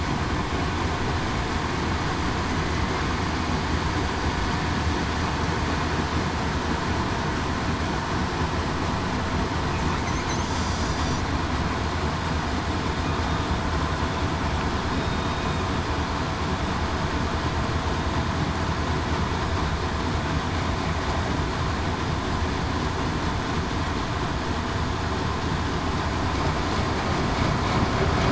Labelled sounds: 14.9	15.4	killer whale, southern resident, 3.7 to 3.8 kHz

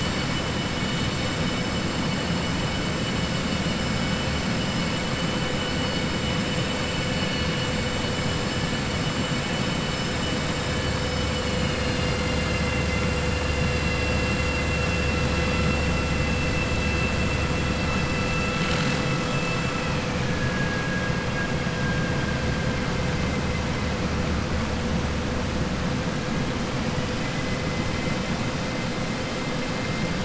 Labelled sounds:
20.1	21.1	vessel noise, 1.6 to 2.5 kHz

